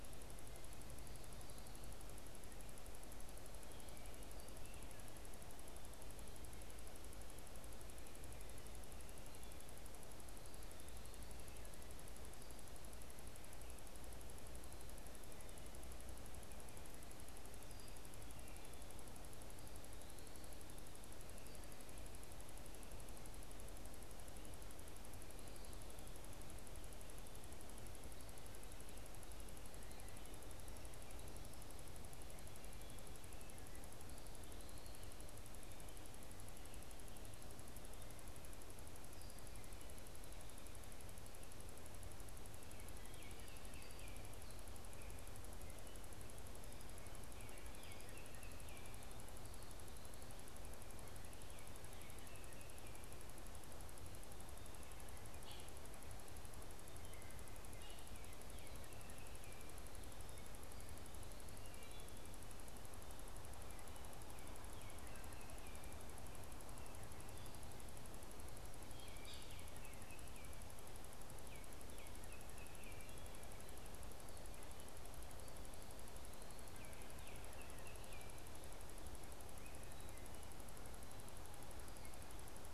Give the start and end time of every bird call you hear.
42.7s-44.4s: Baltimore Oriole (Icterus galbula)
47.1s-49.0s: Baltimore Oriole (Icterus galbula)
51.4s-53.1s: unidentified bird
55.2s-55.7s: American Robin (Turdus migratorius)
64.5s-66.0s: Baltimore Oriole (Icterus galbula)
68.8s-73.4s: Baltimore Oriole (Icterus galbula)
76.6s-78.4s: Baltimore Oriole (Icterus galbula)

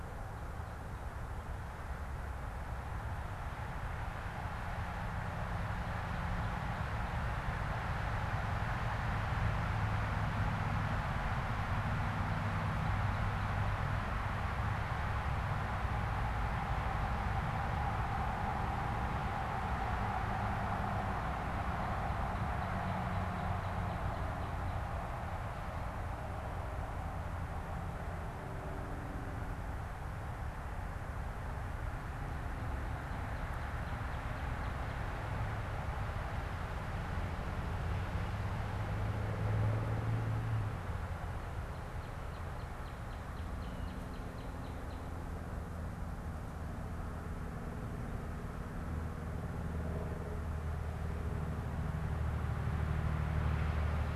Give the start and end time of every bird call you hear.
21.6s-25.0s: unidentified bird
33.1s-35.1s: Northern Cardinal (Cardinalis cardinalis)
41.7s-45.4s: Northern Cardinal (Cardinalis cardinalis)

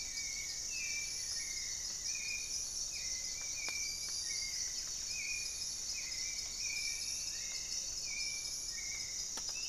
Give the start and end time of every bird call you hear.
0.0s-2.4s: Goeldi's Antbird (Akletos goeldii)
0.0s-9.7s: Hauxwell's Thrush (Turdus hauxwelli)
4.2s-9.7s: Spot-winged Antshrike (Pygiptila stellaris)
5.7s-8.0s: Striped Woodcreeper (Xiphorhynchus obsoletus)

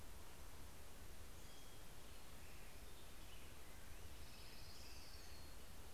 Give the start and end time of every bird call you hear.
3.3s-5.9s: Orange-crowned Warbler (Leiothlypis celata)
4.9s-5.9s: American Robin (Turdus migratorius)

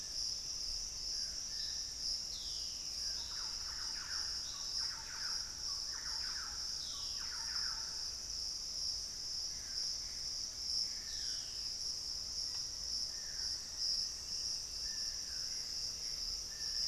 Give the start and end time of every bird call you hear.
0.0s-16.9s: Dusky-throated Antshrike (Thamnomanes ardesiacus)
2.0s-11.9s: Black-spotted Bare-eye (Phlegopsis nigromaculata)
2.6s-8.3s: Thrush-like Wren (Campylorhynchus turdinus)
13.8s-16.9s: Piratic Flycatcher (Legatus leucophaius)
15.1s-16.9s: Gray Antbird (Cercomacra cinerascens)

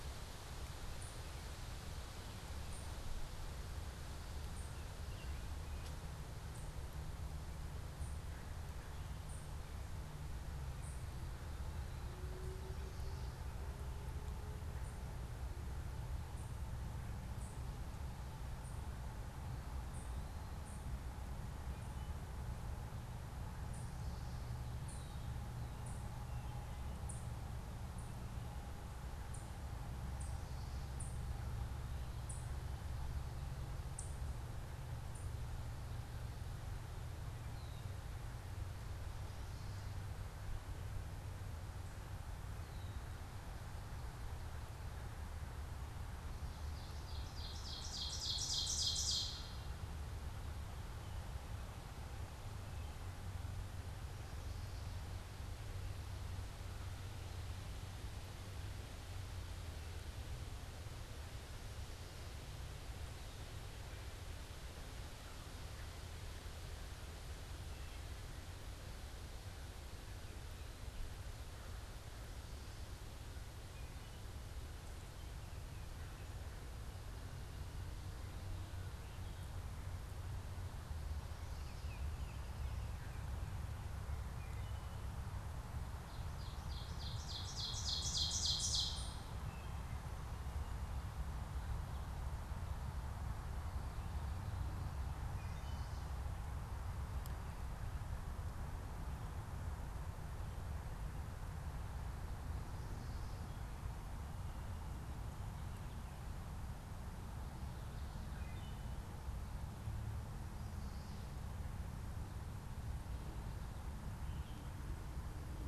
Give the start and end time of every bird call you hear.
0.0s-35.5s: unidentified bird
4.5s-6.0s: American Robin (Turdus migratorius)
24.7s-25.3s: Red-winged Blackbird (Agelaius phoeniceus)
46.5s-50.0s: Ovenbird (Seiurus aurocapilla)
81.2s-82.7s: Baltimore Oriole (Icterus galbula)
84.2s-115.7s: Wood Thrush (Hylocichla mustelina)
85.9s-89.6s: Ovenbird (Seiurus aurocapilla)

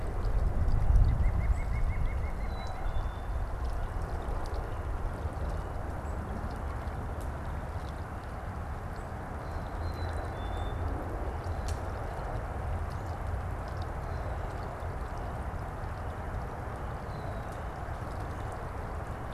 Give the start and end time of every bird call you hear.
0.7s-3.1s: White-breasted Nuthatch (Sitta carolinensis)
2.4s-3.4s: Black-capped Chickadee (Poecile atricapillus)
9.6s-11.0s: Black-capped Chickadee (Poecile atricapillus)

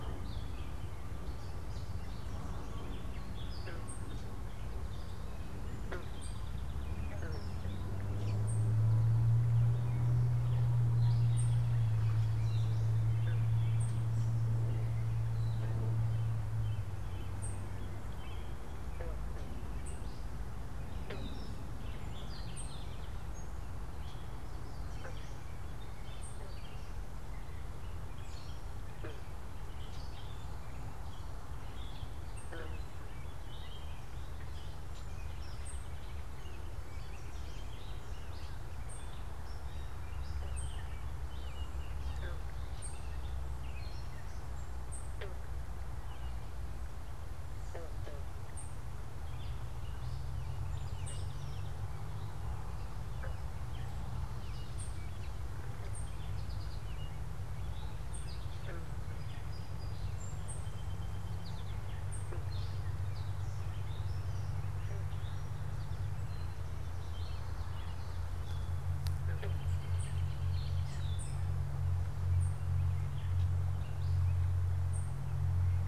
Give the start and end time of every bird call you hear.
0.0s-26.8s: unidentified bird
0.0s-31.6s: Gray Catbird (Dumetella carolinensis)
5.5s-7.5s: Song Sparrow (Melospiza melodia)
21.8s-23.6s: Song Sparrow (Melospiza melodia)
31.7s-75.9s: unidentified bird
34.9s-36.7s: Song Sparrow (Melospiza melodia)
50.5s-52.2s: Song Sparrow (Melospiza melodia)
59.0s-61.7s: Song Sparrow (Melospiza melodia)
67.0s-71.4s: American Robin (Turdus migratorius)

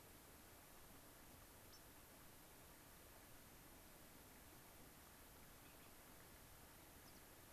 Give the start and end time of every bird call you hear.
1.6s-1.8s: unidentified bird
7.0s-7.2s: American Pipit (Anthus rubescens)

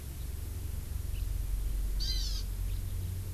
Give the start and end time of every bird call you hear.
1.2s-1.3s: House Finch (Haemorhous mexicanus)
2.0s-2.5s: Hawaii Amakihi (Chlorodrepanis virens)

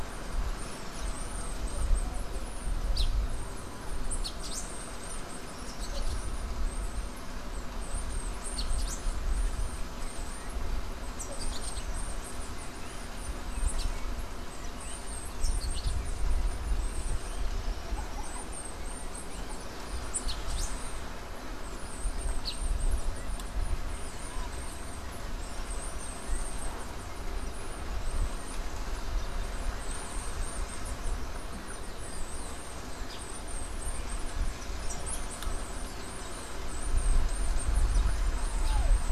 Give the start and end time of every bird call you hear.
0.0s-2.9s: Bananaquit (Coereba flaveola)
0.0s-3.2s: Silver-beaked Tanager (Ramphocelus carbo)
3.8s-39.1s: Bananaquit (Coereba flaveola)
3.9s-16.3s: Silver-beaked Tanager (Ramphocelus carbo)
19.7s-23.0s: Silver-beaked Tanager (Ramphocelus carbo)
32.9s-33.5s: Silver-beaked Tanager (Ramphocelus carbo)
38.5s-39.0s: Silver-beaked Tanager (Ramphocelus carbo)

